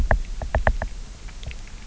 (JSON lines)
{"label": "biophony, knock", "recorder": "SoundTrap 300"}